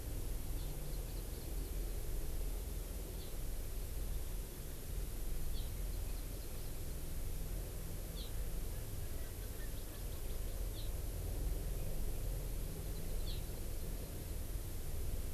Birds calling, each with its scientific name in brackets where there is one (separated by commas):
Erckel's Francolin (Pternistis erckelii), Hawaii Amakihi (Chlorodrepanis virens)